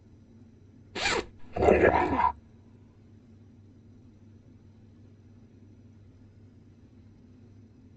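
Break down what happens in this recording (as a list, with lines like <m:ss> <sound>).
0:01 the sound of a zipper
0:01 you can hear a dog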